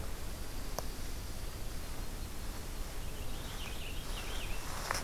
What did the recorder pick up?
Dark-eyed Junco, Yellow-rumped Warbler, Purple Finch